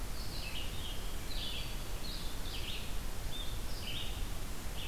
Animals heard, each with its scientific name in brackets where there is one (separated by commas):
Red-eyed Vireo (Vireo olivaceus)